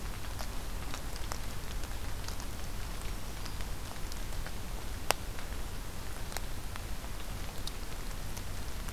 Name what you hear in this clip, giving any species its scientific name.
Setophaga virens